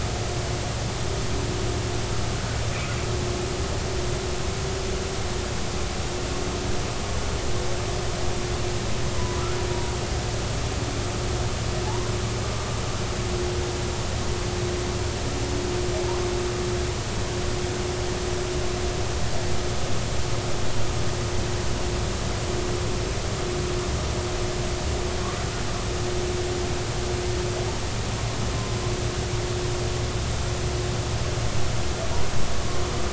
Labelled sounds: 9.2	9.4	humpback whale, 0.93 to 1.0 kHz
11.9	12.1	humpback whale, 0.80 to 1.1 kHz

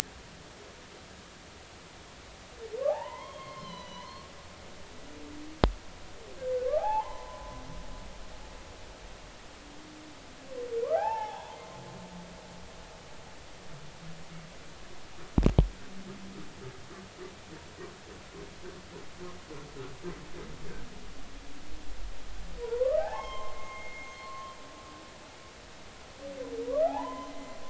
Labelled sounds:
2.9	4.2	humpback whale, 0.80 to 6.0 kHz
6.4	7.6	humpback whale, 0.80 to 1.8 kHz
10.9	11.6	humpback whale, 0.80 to 3.5 kHz
22.6	24.5	humpback whale, 0.80 to 6.5 kHz
26.6	27.6	humpback whale, 0.80 to 3.1 kHz

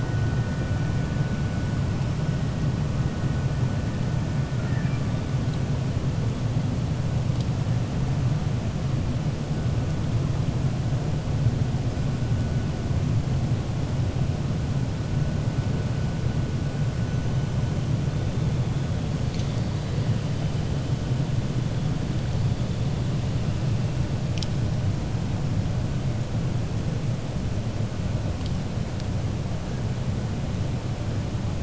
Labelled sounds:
4.5	5.0	killer whale, 1.4 to 2.7 kHz

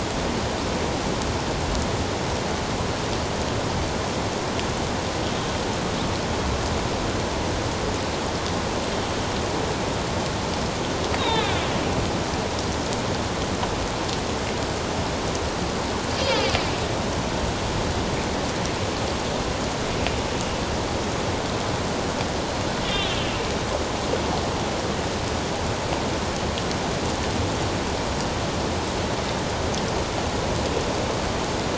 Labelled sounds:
11.2	11.6	killer whale, northern resident, A clan, AB subclan, 1.4 to 4.1 kHz
16.2	16.5	killer whale, northern resident, A clan, AB subclan, 3.0 to 4.9 kHz
22.8	23.2	killer whale, northern resident, A clan, AB subclan, 2.9 to 3.7 kHz

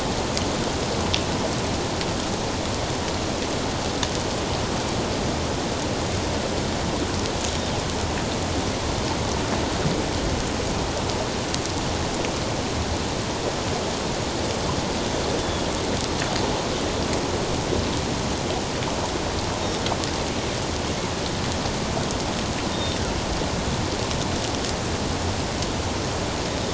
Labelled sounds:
15.4	15.7	Pacific white-sided dolphin, 3.3 to 3.6 kHz
22.7	23.0	Pacific white-sided dolphin, 3.6 to 3.7 kHz

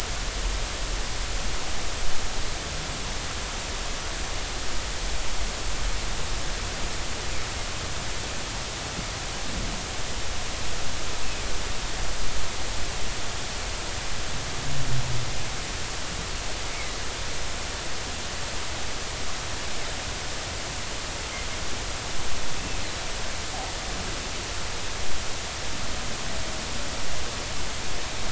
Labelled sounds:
16.7	17.0	humpback whale, 2.0 to 2.3 kHz

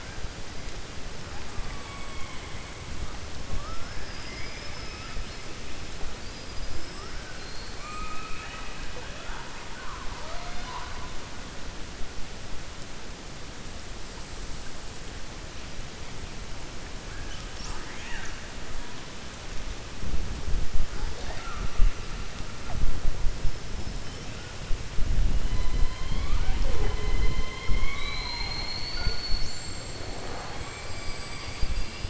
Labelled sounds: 7.3	8.9	killer whale, 1.2 to 4.5 kHz
17.6	18.4	killer whale, 0.83 to 3.6 kHz
30.8	32.0	killer whale, 4.6 to 5.8 kHz

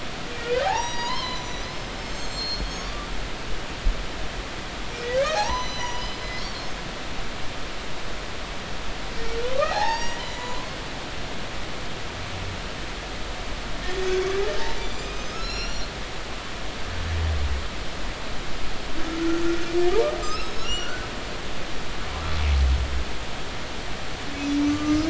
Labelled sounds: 0.7	3.1	humpback whale, 0.80 to 7.9 kHz
5.0	6.5	humpback whale, 0.80 to 8.0 kHz
9.7	10.7	humpback whale, 0.80 to 7.6 kHz
13.8	15.9	humpback whale, 1.8 to 7.4 kHz
20.2	21.1	humpback whale, 1.2 to 6.9 kHz
24.3	25.0	humpback whale, 1.1 to 7.2 kHz

